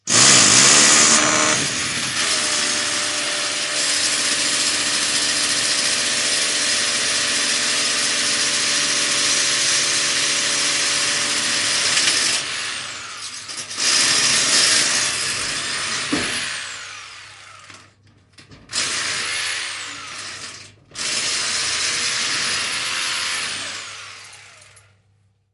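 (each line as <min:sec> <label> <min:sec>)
0:00.0 A drill buzzes loudly with occasional pauses while drilling into a wall. 0:25.5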